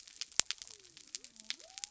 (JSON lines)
{"label": "biophony", "recorder": "SoundTrap 300"}